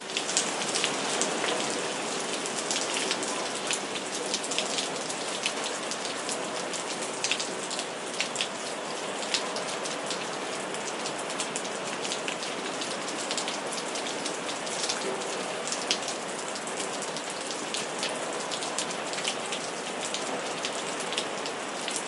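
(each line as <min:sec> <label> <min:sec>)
0:00.0 Rain repeatedly falls on the pavement. 0:22.1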